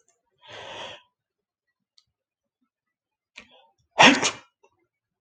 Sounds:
Sneeze